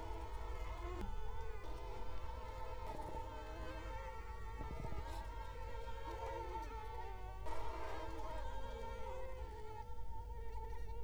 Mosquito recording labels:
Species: Culex quinquefasciatus; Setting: cup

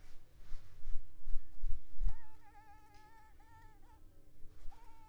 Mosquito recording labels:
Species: Culex pipiens complex; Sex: female; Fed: unfed; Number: one; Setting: cup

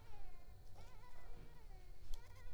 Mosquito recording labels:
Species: Culex pipiens complex; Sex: female; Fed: unfed; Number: one; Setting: cup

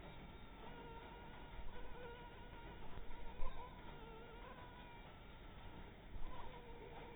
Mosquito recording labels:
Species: Anopheles maculatus; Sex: female; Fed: blood-fed; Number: one; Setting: cup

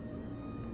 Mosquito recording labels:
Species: Culex quinquefasciatus; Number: one; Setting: insect culture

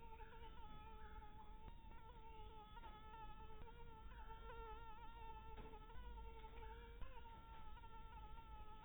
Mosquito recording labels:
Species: Anopheles dirus; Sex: female; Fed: unfed; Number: one; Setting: cup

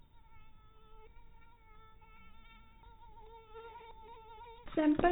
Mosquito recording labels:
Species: mosquito; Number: one; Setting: cup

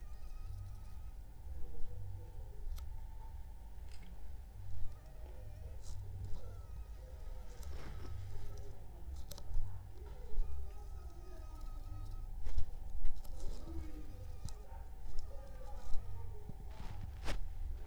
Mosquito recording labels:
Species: Anopheles funestus s.s.; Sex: female; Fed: unfed; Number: one; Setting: cup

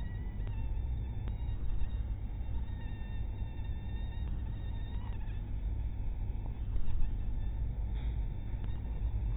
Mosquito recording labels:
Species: mosquito; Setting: cup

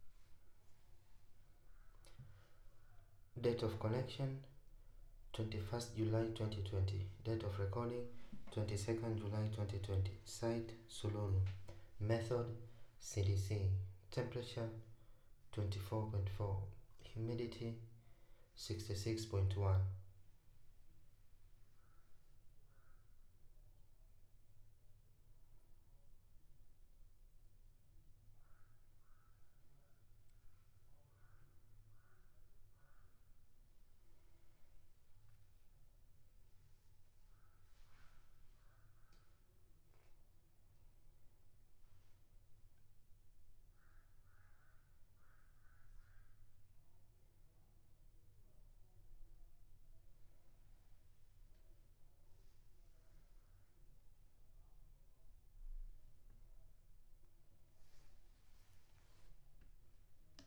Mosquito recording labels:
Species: no mosquito; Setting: cup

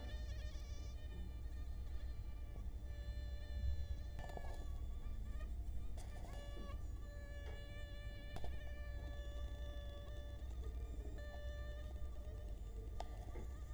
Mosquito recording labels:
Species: Culex quinquefasciatus; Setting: cup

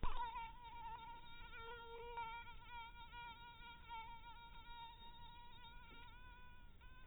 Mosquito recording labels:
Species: mosquito; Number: one; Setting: cup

